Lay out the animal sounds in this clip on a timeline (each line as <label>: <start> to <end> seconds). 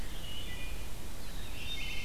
Wood Thrush (Hylocichla mustelina): 0.1 to 2.0 seconds
Black-throated Blue Warbler (Setophaga caerulescens): 1.0 to 2.0 seconds